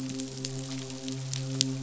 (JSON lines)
{"label": "biophony, midshipman", "recorder": "SoundTrap 500"}